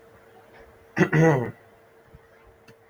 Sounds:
Throat clearing